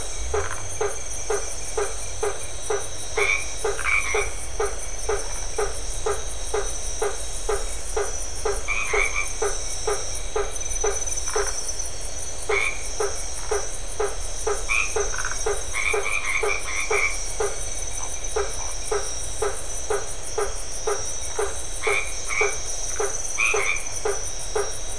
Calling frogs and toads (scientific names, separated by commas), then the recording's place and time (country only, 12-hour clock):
Boana faber, Phyllomedusa distincta, Boana albomarginata
Brazil, 9:30pm